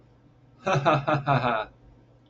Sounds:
Laughter